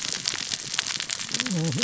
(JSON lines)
{"label": "biophony, cascading saw", "recorder": "SoundTrap 600 or HydroMoth"}